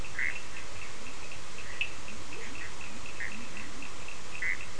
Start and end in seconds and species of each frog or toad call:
0.0	4.7	Bischoff's tree frog
0.0	4.7	Cochran's lime tree frog
2.0	3.9	Leptodactylus latrans

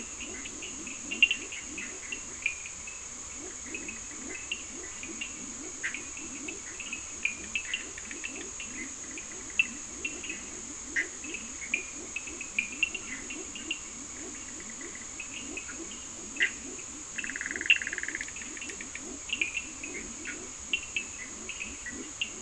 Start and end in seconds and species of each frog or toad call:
0.0	22.4	Leptodactylus latrans
0.0	22.4	Cochran's lime tree frog
5.7	8.5	Bischoff's tree frog
10.8	11.2	Bischoff's tree frog
16.2	19.2	Bischoff's tree frog

